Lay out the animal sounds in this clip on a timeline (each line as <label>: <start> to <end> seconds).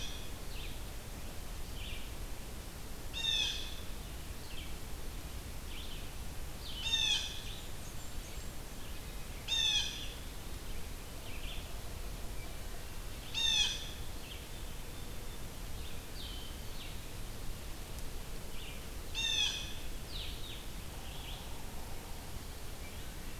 Blue Jay (Cyanocitta cristata): 0.0 to 0.8 seconds
Red-eyed Vireo (Vireo olivaceus): 0.0 to 23.4 seconds
Blue Jay (Cyanocitta cristata): 3.0 to 3.7 seconds
Blue Jay (Cyanocitta cristata): 6.6 to 7.8 seconds
Blackburnian Warbler (Setophaga fusca): 7.4 to 8.6 seconds
Blue Jay (Cyanocitta cristata): 9.2 to 10.5 seconds
Blue Jay (Cyanocitta cristata): 13.0 to 14.2 seconds
Blue-headed Vireo (Vireo solitarius): 16.0 to 23.4 seconds
Blue Jay (Cyanocitta cristata): 18.9 to 19.9 seconds